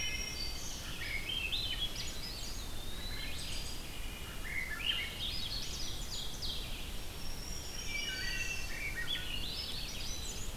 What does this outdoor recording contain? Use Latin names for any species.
Hylocichla mustelina, Setophaga virens, Vireo olivaceus, Catharus ustulatus, Contopus virens, Seiurus aurocapilla